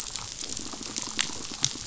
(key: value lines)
label: biophony
recorder: SoundTrap 500